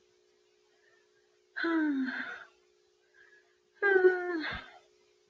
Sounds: Sigh